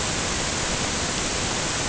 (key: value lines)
label: ambient
recorder: HydroMoth